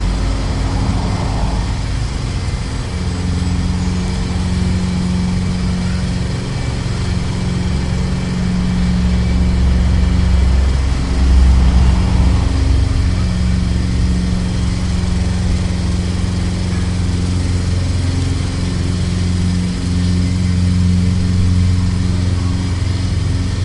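The whirring of a lawnmower mowing the lawn. 0.0 - 23.6

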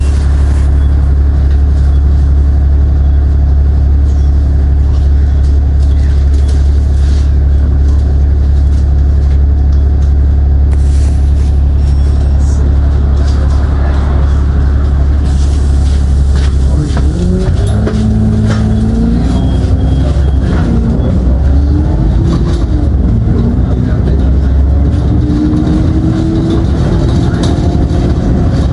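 Engine sounds. 0.0 - 28.7
People are talking in the background. 3.9 - 28.7
A ticket machine beeps. 11.8 - 12.8
Footsteps of a person. 15.5 - 18.7

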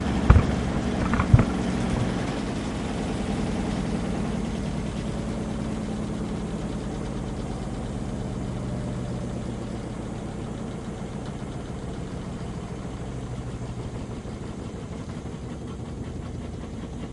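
A muffled, low-pitched humming and vibrating sound of a washing machine spinning in the background. 0.0 - 17.1
The microphone is being tapped. 0.2 - 0.5
The microphone is being tapped. 1.3 - 1.5

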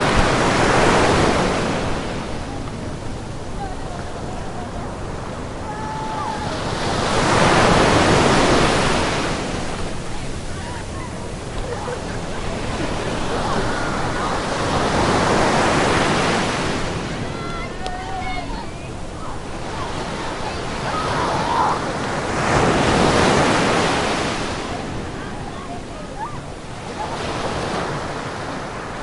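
Waves splash on the coast while people are shouting in the background. 0.0 - 29.0

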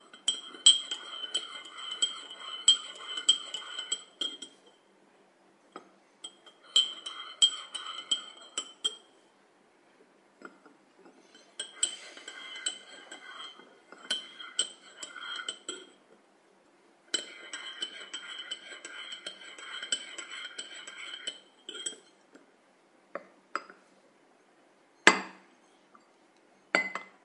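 A spoon clinks and scrapes while stirring a drink. 0.1 - 4.0
A spoon is set down in a cup, producing a metallic clinking sound. 4.1 - 4.6
A cup is set down on the table with a muffled sound. 5.6 - 6.0
A metallic spoon softly clinks against a porcelain cup. 6.1 - 6.5
A spoon clinks and scrapes while stirring a drink. 6.7 - 8.4
A spoon is set down in a cup, producing a metallic clinking sound. 8.4 - 9.1
A cup is set down on the table with a muffled sound. 10.3 - 10.8
A person exhales softly. 11.4 - 15.6
A person breathes out softly. 11.7 - 12.8
A spoon is set down in a cup, producing a metallic clinking sound. 15.6 - 16.0
A spoon clinks and scrapes while stirring a drink. 17.0 - 21.5
A spoon is set down in a cup, producing a metallic clinking sound. 21.6 - 22.1
Setting down a cup on the table produces two muffled sounds. 23.0 - 23.8
A porcelain cup hits another, making a sudden clinking sound. 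24.9 - 25.5
A porcelain cup softly clinks against another. 26.6 - 27.2

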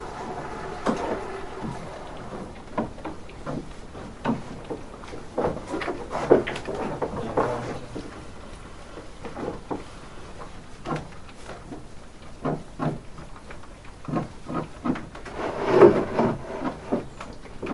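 A farmer is milking an animal by hand in a barn. 0.0 - 17.7

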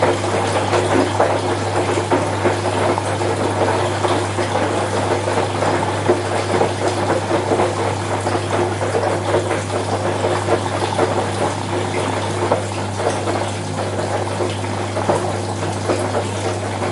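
Water splashes and drips mixed with the gentle swishing of clothes being washed. 0.0 - 16.9

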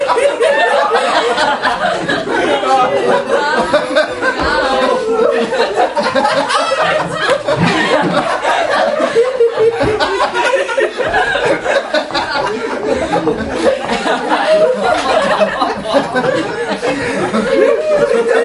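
People laughing loudly. 0.0 - 18.4

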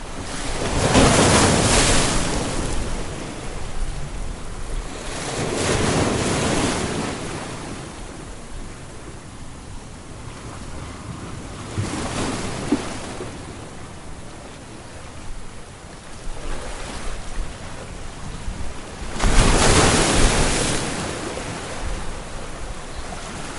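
Constant ambient sound of the sea in the background. 0.0 - 23.6
A wave crashes. 0.4 - 3.1
A wave crashes. 5.2 - 7.6
A splash sound. 11.7 - 13.6
A soft splash is heard. 16.3 - 17.5
A wave crashes. 19.2 - 21.8

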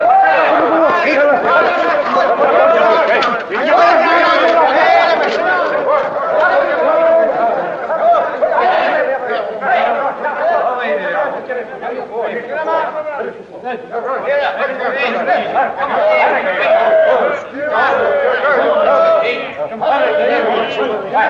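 The crowd is talking loudly all at once. 0.0 - 21.3

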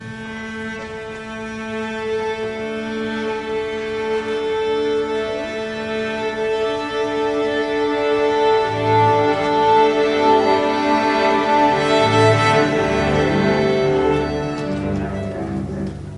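Many instruments are playing increasingly loudly inside a room. 0.0 - 16.2

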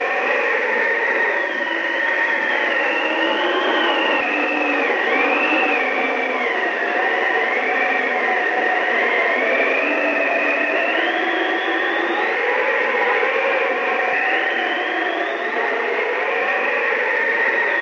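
An imitation of an old-fashioned wind sound effect. 0.0 - 17.8

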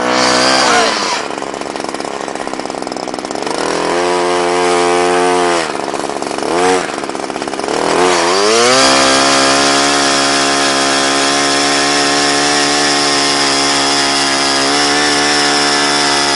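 A chainsaw roars sharply with a grinding sound as it drills into wood, rising in pitch and intensity. 0.0 - 1.2
A chainsaw motor revs loudly with a rough, sputtering growl. 1.2 - 3.5
A chainsaw roars sharply with a grinding sound as it drills into wood, rising in pitch and intensity. 3.6 - 5.7
A chainsaw motor revs loudly with a rough, sputtering growl. 5.7 - 7.8
A chainsaw cuts into wood with a sharp, grinding roar that rises in pitch and intensity. 6.4 - 6.8
A chainsaw roars sharply with a grinding sound as it drills into wood, rising in pitch and intensity. 7.8 - 8.9
A chainsaw drills into wood with a sharp, grinding roar that is constant and repetitive. 8.9 - 16.3

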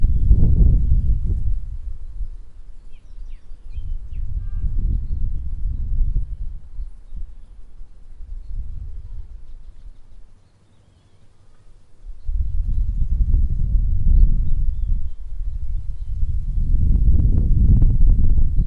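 Quiet, steady wind. 0.0 - 10.5
Birds chirping in the background. 2.9 - 4.3
A vehicle horn sounds in the background. 4.5 - 5.1
Quiet, steady wind. 12.0 - 18.7

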